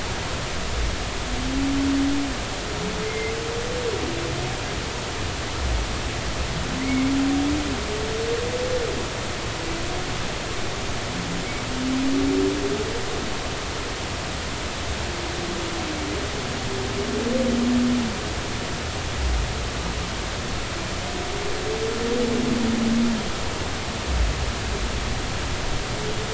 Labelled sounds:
3.1	3.3	humpback whale, 2.0 to 2.2 kHz
6.8	7.1	humpback whale, 1.9 to 2.4 kHz

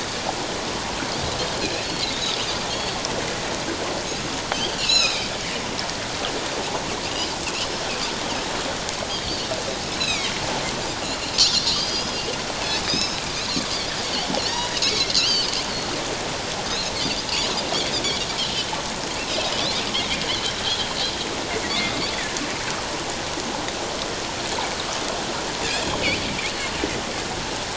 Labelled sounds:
4.5	5.4	Pacific white-sided dolphin, 2.2 to 6.9 kHz
9.8	10.3	Pacific white-sided dolphin, 2.0 to 5.5 kHz
11.7	12.3	Pacific white-sided dolphin, 3.0 to 5.2 kHz
12.8	13.2	Pacific white-sided dolphin, 2.4 to 6.7 kHz
14.4	15.5	Pacific white-sided dolphin, 2.1 to 5.9 kHz
16.7	17.2	Pacific white-sided dolphin, 3.5 to 5.0 kHz
18.4	18.7	Pacific white-sided dolphin, 2.9 to 3.3 kHz
20.3	20.5	Pacific white-sided dolphin, 2.9 to 3.5 kHz

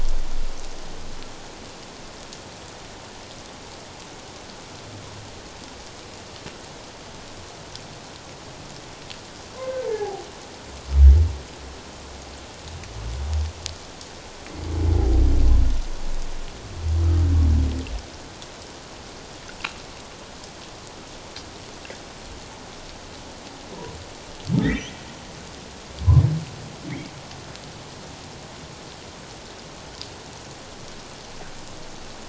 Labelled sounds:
9.8	10.2	humpback whale, 0.78 to 0.94 kHz
24.6	24.9	humpback whale, 1.7 to 2.1 kHz

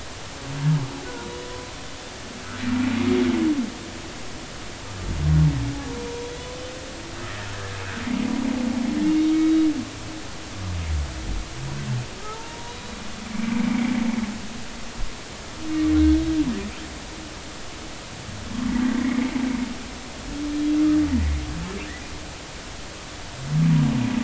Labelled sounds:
1.0	1.3	humpback whale, 1.3 to 1.5 kHz
9.3	9.6	humpback whale, 3.8 to 3.9 kHz
12.2	12.8	humpback whale, 0.83 to 1.0 kHz
19.0	19.3	humpback whale, 1.7 to 2.3 kHz

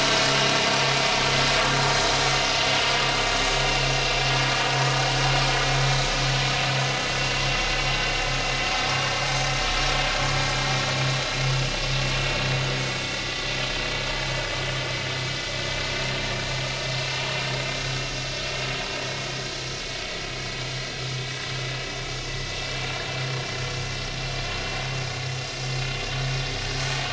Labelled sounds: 8.9	9.1	vessel noise, 1.1 to 1.2 kHz
13.1	13.5	vessel noise, 1.9 to 2.0 kHz
24.8	25.1	vessel noise, 6.1 to 6.3 kHz

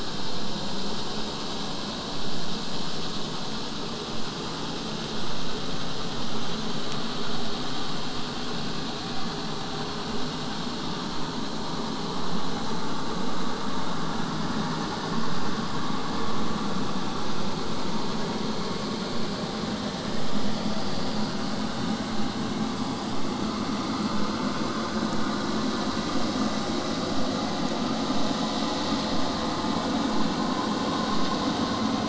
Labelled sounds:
27.1	32.0	vessel noise, 0 to 8.0 kHz

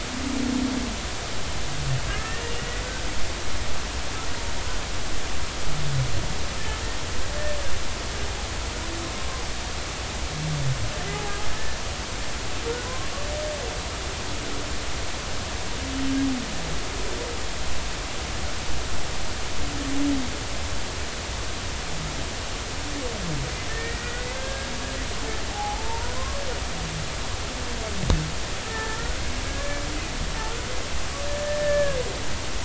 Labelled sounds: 2.1	2.8	humpback whale, 1.6 to 2.0 kHz
12.9	13.1	humpback whale, 0.96 to 1.1 kHz
24.0	26.4	humpback whale, 0.80 to 2.1 kHz
28.6	29.9	humpback whale, 1.6 to 2.3 kHz
31.4	32.0	humpback whale, 1.6 to 1.8 kHz

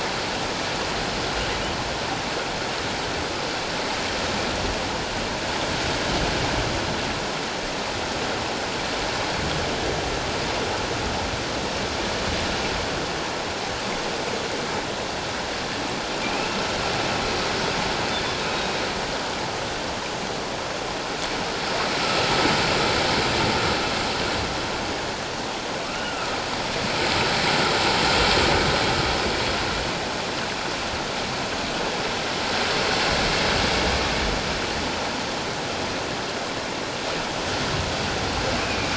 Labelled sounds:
16.2	16.6	humpback whale, 2.3 to 2.8 kHz
25.8	26.4	humpback whale, 1.1 to 1.6 kHz
38.6	38.9	humpback whale, 2.2 to 2.6 kHz

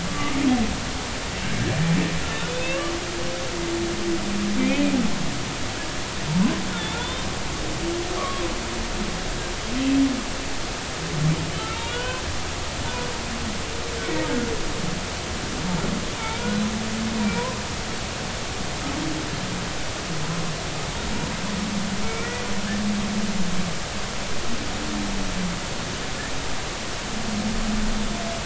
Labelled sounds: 0.1	0.4	humpback whale, 1.1 to 1.2 kHz
2.5	2.8	humpback whale, 2.5 to 2.8 kHz
4.6	4.8	humpback whale, 2.3 to 2.6 kHz
6.7	7.3	humpback whale, 3.4 to 3.7 kHz
8.2	8.4	humpback whale, 1.0 to 1.3 kHz
11.7	12.2	humpback whale, 0.93 to 3.9 kHz
17.3	17.6	humpback whale, 0.93 to 1.1 kHz
22.0	22.4	humpback whale, 1.3 to 2.4 kHz

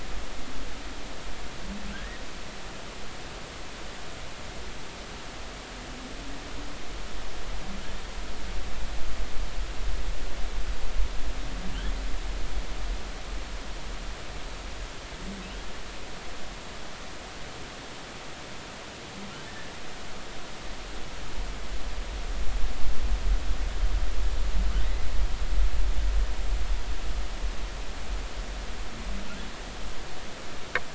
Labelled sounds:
1.9	2.2	humpback whale, 1.4 to 2.1 kHz
19.5	19.7	humpback whale, 1.7 to 1.9 kHz
24.8	25.0	humpback whale, 1.8 to 2.0 kHz

